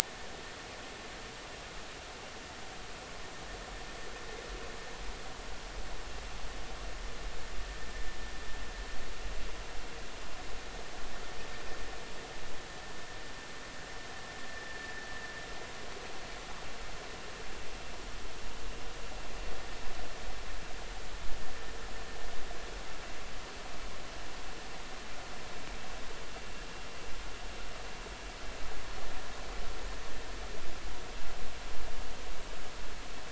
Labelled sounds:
14.7	14.9	vessel noise, 1.7 to 1.9 kHz

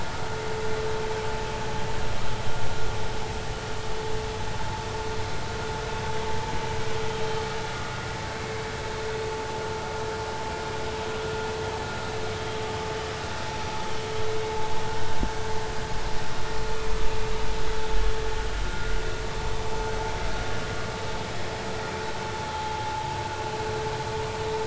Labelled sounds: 18.7	18.9	vessel noise, 1.3 to 1.5 kHz
22.5	23.2	vessel noise, 0.80 to 0.96 kHz

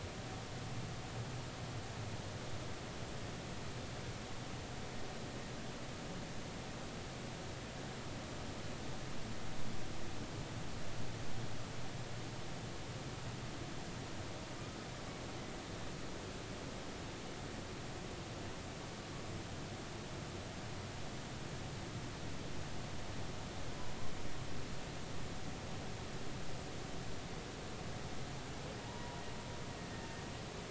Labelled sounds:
28.8	29.2	humpback whale, 0.80 to 1.0 kHz

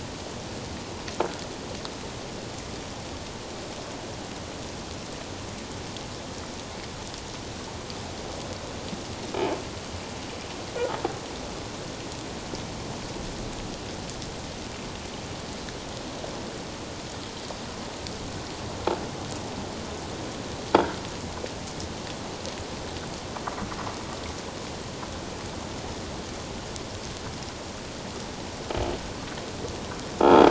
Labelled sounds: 30.2	30.4	croaking sound likely from a nearby submerged object, 3.2 to 3.5 kHz

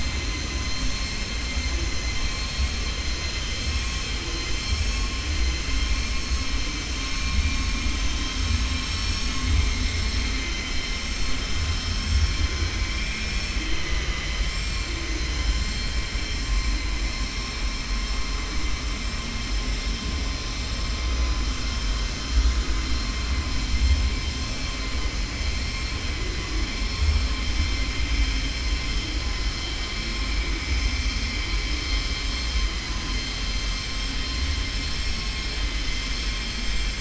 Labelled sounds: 11.5	12.4	vessel noise, 4.4 to 6.4 kHz

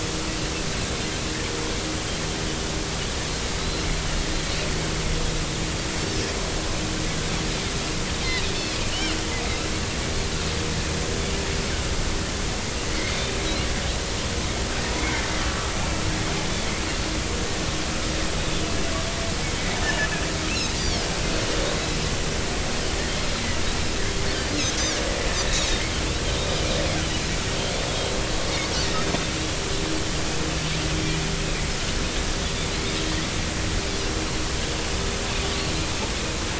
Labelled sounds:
3.6	3.9	Pacific white-sided dolphin, 3.8 to 4.2 kHz
8.2	9.2	Pacific white-sided dolphin, 2.7 to 4.2 kHz
12.9	13.2	Pacific white-sided dolphin, 1.9 to 2.3 kHz
15.0	15.2	Pacific white-sided dolphin, 2.0 to 2.4 kHz
19.8	20.1	Pacific white-sided dolphin, 1.7 to 2.0 kHz
20.5	21.1	Pacific white-sided dolphin, 2.4 to 6.0 kHz
24.5	25.8	Pacific white-sided dolphin, 3.6 to 4.3 kHz
27.9	28.1	Pacific white-sided dolphin, 3.1 to 3.4 kHz

